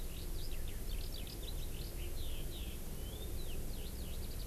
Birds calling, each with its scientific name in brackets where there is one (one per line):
Eurasian Skylark (Alauda arvensis)